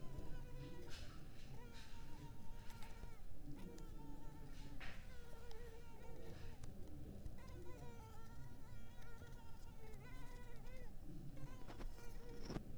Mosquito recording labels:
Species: Culex pipiens complex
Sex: female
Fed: unfed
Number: one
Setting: cup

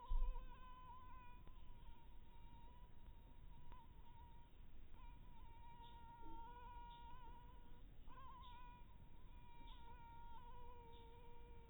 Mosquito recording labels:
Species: Anopheles harrisoni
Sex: female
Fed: blood-fed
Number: one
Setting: cup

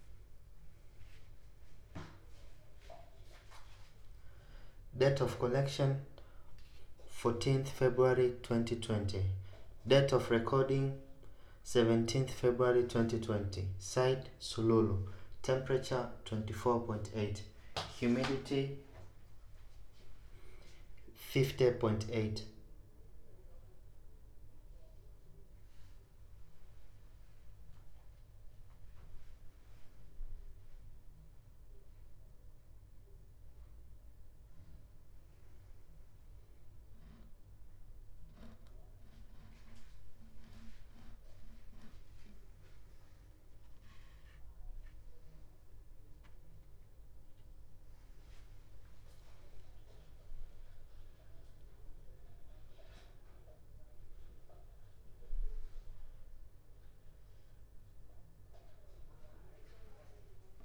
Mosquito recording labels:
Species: no mosquito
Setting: cup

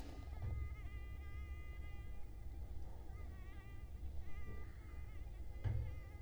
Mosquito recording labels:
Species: Culex quinquefasciatus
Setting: cup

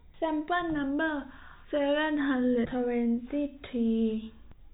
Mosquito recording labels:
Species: no mosquito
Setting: cup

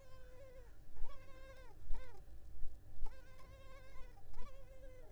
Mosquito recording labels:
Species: Culex pipiens complex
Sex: female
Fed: unfed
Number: one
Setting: cup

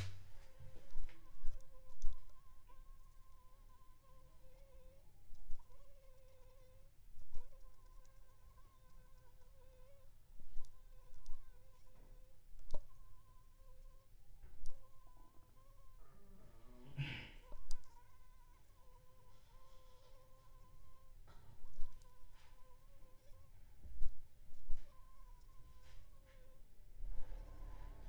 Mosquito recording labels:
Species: Anopheles funestus s.s.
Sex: female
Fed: unfed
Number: one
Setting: cup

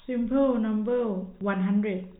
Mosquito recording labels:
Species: no mosquito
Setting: cup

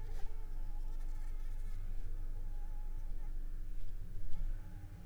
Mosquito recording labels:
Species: Anopheles arabiensis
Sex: female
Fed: unfed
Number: one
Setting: cup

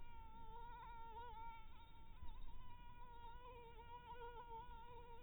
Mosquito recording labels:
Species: Anopheles dirus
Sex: female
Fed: blood-fed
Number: one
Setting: cup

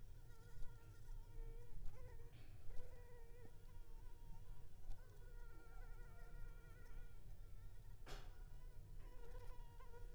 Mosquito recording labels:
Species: Anopheles arabiensis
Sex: female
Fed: unfed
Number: one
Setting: cup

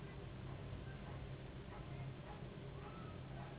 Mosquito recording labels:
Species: Anopheles gambiae s.s.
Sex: female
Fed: unfed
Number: one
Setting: insect culture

